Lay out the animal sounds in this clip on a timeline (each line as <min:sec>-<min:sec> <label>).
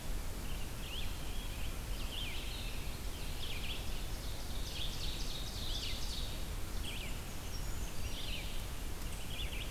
0:00.6-0:09.7 Red-eyed Vireo (Vireo olivaceus)
0:04.2-0:06.6 Ovenbird (Seiurus aurocapilla)
0:07.1-0:08.4 Brown Creeper (Certhia americana)